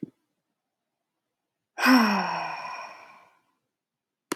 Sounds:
Sigh